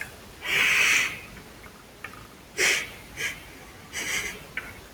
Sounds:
Sniff